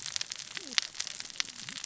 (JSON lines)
{"label": "biophony, cascading saw", "recorder": "SoundTrap 600 or HydroMoth"}